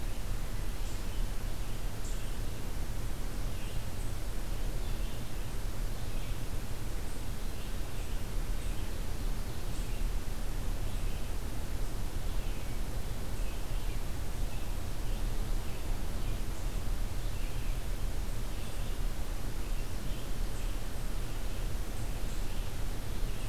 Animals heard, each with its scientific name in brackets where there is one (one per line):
Ovenbird (Seiurus aurocapilla)
Red-eyed Vireo (Vireo olivaceus)